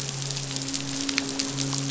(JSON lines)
{"label": "biophony, midshipman", "recorder": "SoundTrap 500"}